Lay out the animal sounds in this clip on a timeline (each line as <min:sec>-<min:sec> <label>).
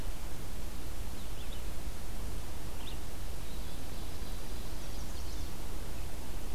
0:00.0-0:06.5 Red-eyed Vireo (Vireo olivaceus)
0:03.3-0:04.7 Ovenbird (Seiurus aurocapilla)
0:04.5-0:05.6 Chestnut-sided Warbler (Setophaga pensylvanica)